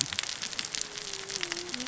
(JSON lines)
{"label": "biophony, cascading saw", "recorder": "SoundTrap 600 or HydroMoth"}